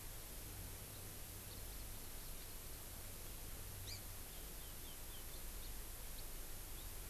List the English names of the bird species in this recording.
Hawaii Amakihi